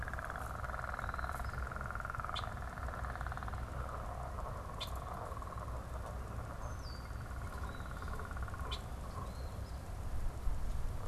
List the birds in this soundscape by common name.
Eastern Phoebe, unidentified bird, Red-winged Blackbird